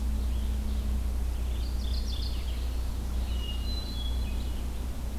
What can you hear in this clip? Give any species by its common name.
Red-eyed Vireo, Mourning Warbler, Hermit Thrush